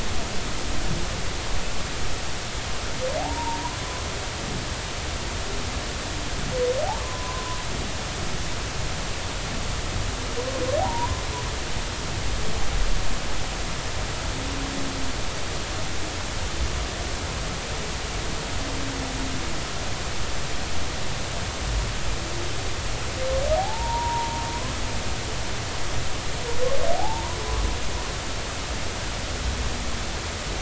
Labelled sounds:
3.2	3.8	humpback whale, 0.80 to 1.1 kHz
7.0	7.6	humpback whale, 0.96 to 1.2 kHz
10.8	11.2	humpback whale, 0.80 to 1.1 kHz
23.6	24.4	humpback whale, 0.80 to 0.99 kHz
27.0	27.4	humpback whale, 0.80 to 1.1 kHz

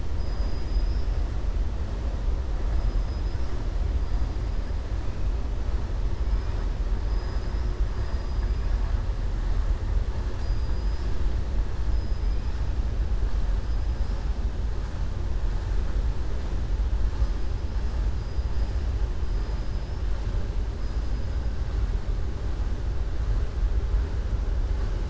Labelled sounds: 0.2	1.1	killer whale, southern resident, 4.9 to 5.5 kHz
7.0	7.7	killer whale, southern resident, 4.5 to 5.7 kHz
10.3	11.1	killer whale, southern resident, 4.0 to 6.8 kHz

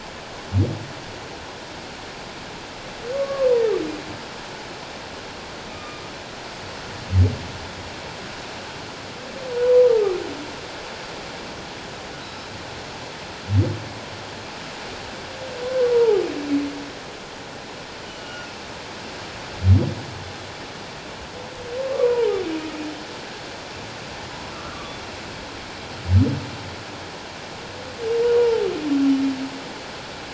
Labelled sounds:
3.1	3.5	humpback whale, 1.0 to 1.2 kHz
5.7	6.0	humpback whale, 1.2 to 1.3 kHz
15.9	16.2	humpback whale, 0.78 to 1.0 kHz
18.1	18.5	humpback whale, 1.3 to 3.0 kHz
22.0	22.3	humpback whale, 0.84 to 2.5 kHz
24.5	25.0	humpback whale, 1.1 to 1.5 kHz
28.4	28.7	humpback whale, 0.84 to 1.0 kHz

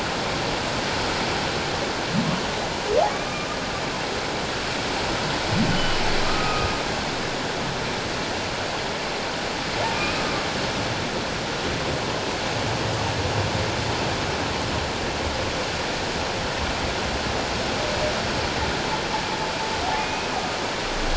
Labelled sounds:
5.7	6.7	humpback whale, 1.2 to 3.1 kHz
10.0	10.3	humpback whale, 2.3 to 2.6 kHz
20.0	20.3	humpback whale, 2.4 to 2.6 kHz

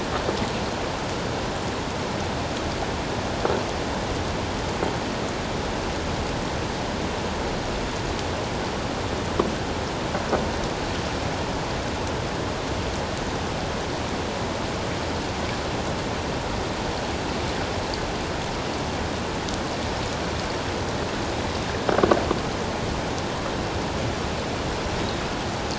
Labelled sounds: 24.9	25.2	Pacific white-sided dolphin, 3.7 to 3.9 kHz

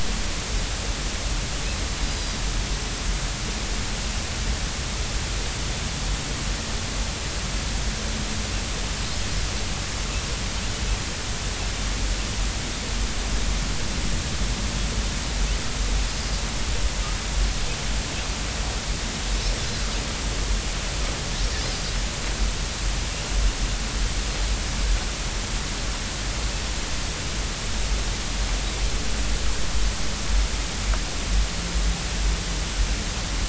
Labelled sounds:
2.1	2.4	Pacific white-sided dolphin, 4.7 to 5.0 kHz

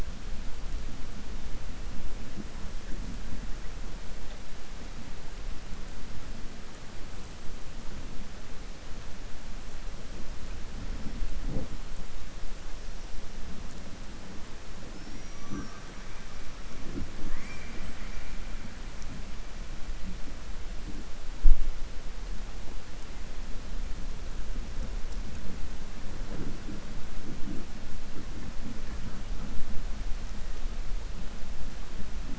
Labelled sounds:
14.9	15.8	killer whale, southern resident, 5.1 to 6.0 kHz

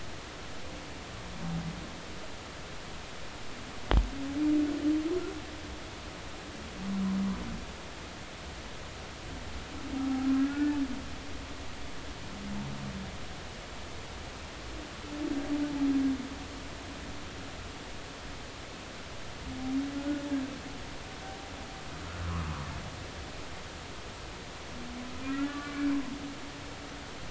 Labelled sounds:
10.3	10.8	humpback whale, 1.3 to 1.8 kHz
20.0	20.3	humpback whale, 1.4 to 1.5 kHz
25.3	25.9	humpback whale, 1.1 to 2.4 kHz

